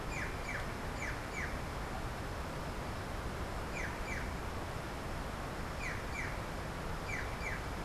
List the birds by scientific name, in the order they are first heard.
Cyanocorax affinis